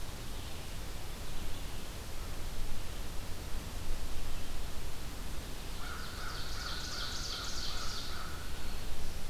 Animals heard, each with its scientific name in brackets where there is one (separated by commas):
American Crow (Corvus brachyrhynchos), Ovenbird (Seiurus aurocapilla), Black-throated Green Warbler (Setophaga virens), Red-eyed Vireo (Vireo olivaceus)